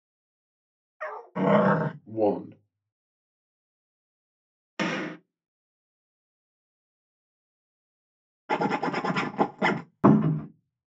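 First, a dog barks quietly. After that, growling can be heard. Next, someone says "One." Following that, gunfire is audible. Afterwards, the sound of a zipper is heard. After that, a cupboard opens or closes.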